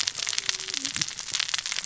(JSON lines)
{"label": "biophony, cascading saw", "recorder": "SoundTrap 600 or HydroMoth"}